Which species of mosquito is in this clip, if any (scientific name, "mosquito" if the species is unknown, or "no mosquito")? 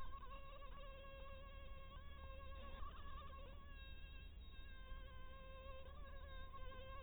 mosquito